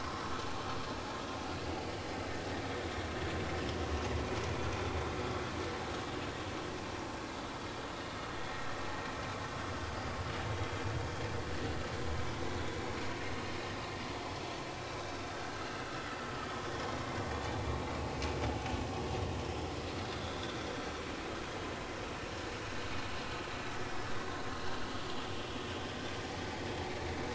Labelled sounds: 10.5	10.8	vessel noise, 3.2 to 3.3 kHz
15.3	15.6	vessel noise, 1.4 to 1.7 kHz
16.7	17.0	vessel noise, 5.6 to 5.7 kHz
20.1	20.6	vessel noise, 3.3 to 3.8 kHz

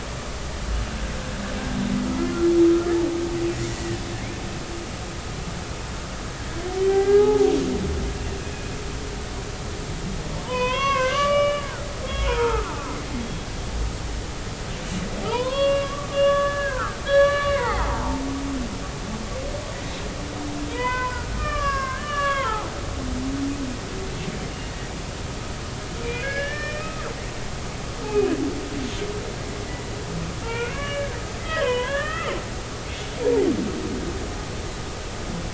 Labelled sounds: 3.7	4.0	humpback whale, 1.7 to 2.0 kHz
6.8	7.5	humpback whale, 0.80 to 2.1 kHz
10.4	11.9	humpback whale, 0.86 to 3.6 kHz
12.2	12.7	humpback whale, 0.80 to 1.5 kHz
15.2	18.2	humpback whale, 0.80 to 4.6 kHz
20.7	23.0	humpback whale, 0.80 to 5.7 kHz
26.1	27.1	humpback whale, 1.2 to 5.5 kHz
28.1	28.3	humpback whale, 2.5 to 2.6 kHz
30.4	32.9	humpback whale, 0.86 to 3.6 kHz

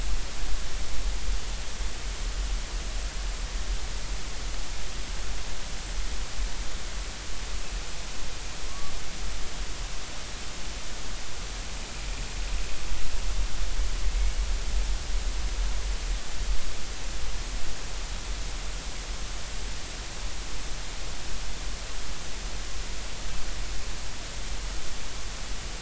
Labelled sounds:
8.7	8.9	killer whale, northern resident, 1.1 to 1.2 kHz

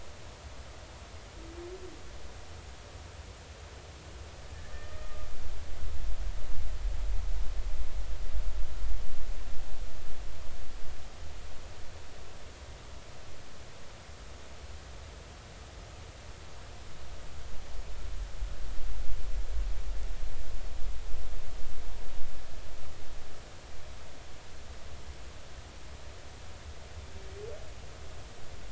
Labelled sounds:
4.5	5.3	humpback whale, 1.2 to 2.0 kHz

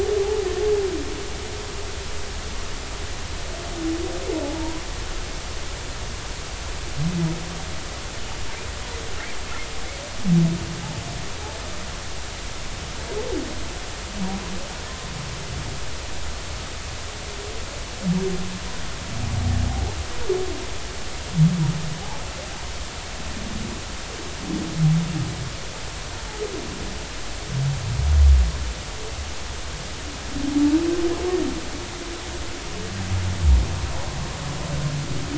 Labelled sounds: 4.6	4.8	humpback whale, 0.86 to 1.0 kHz

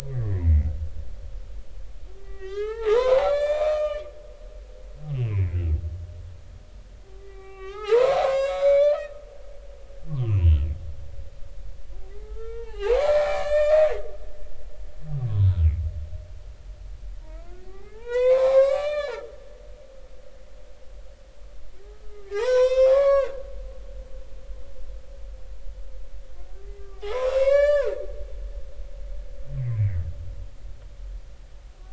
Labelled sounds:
0.1	0.7	humpback whale, 1.6 to 2.2 kHz
2.2	4.0	humpback whale, 0.80 to 7.2 kHz
5.1	5.7	humpback whale, 1.9 to 2.9 kHz
7.1	9.2	humpback whale, 0.80 to 5.4 kHz
10.1	10.6	humpback whale, 0.96 to 3.2 kHz
12.2	13.9	humpback whale, 0.80 to 5.5 kHz
17.2	19.4	humpback whale, 0.80 to 7.6 kHz
21.9	23.3	humpback whale, 0.80 to 6.2 kHz
24.0	24.3	humpback whale, 2.6 to 4.6 kHz
26.8	28.0	humpback whale, 0.80 to 8.0 kHz
29.6	30.0	humpback whale, 1.8 to 2.4 kHz

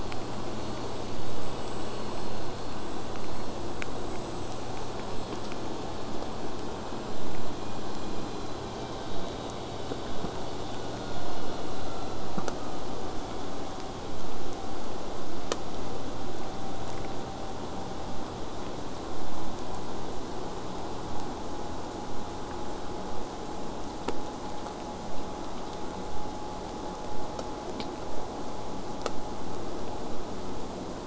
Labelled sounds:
24.4	29.4	vessel noise, 0 to 8.0 kHz

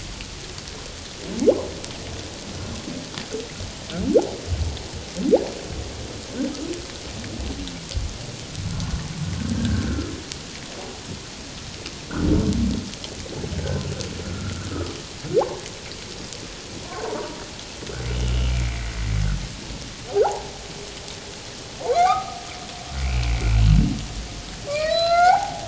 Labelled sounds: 9.4	10.1	humpback whale, 1.2 to 1.7 kHz
18.5	18.8	humpback whale, 2.0 to 2.4 kHz
20.2	20.5	humpback whale, 0.78 to 1.1 kHz
21.9	23.3	humpback whale, 0.78 to 2.7 kHz
24.7	25.6	humpback whale, 0.78 to 4.7 kHz

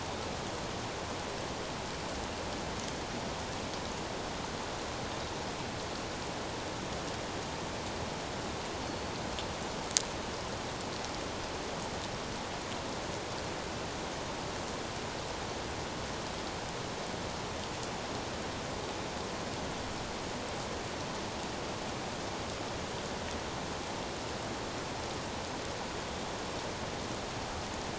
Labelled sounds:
8.8	9.1	Pacific white-sided dolphin, 4.2 to 4.5 kHz

